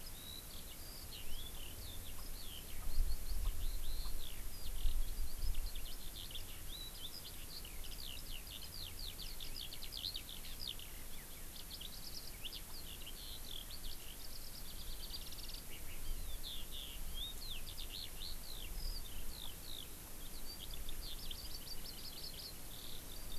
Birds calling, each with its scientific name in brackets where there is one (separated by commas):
Hawaii Amakihi (Chlorodrepanis virens), Eurasian Skylark (Alauda arvensis), House Finch (Haemorhous mexicanus)